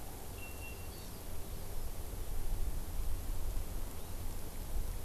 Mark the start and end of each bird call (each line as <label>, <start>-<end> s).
Hawaii Amakihi (Chlorodrepanis virens), 0.9-1.2 s